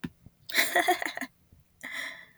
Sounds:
Laughter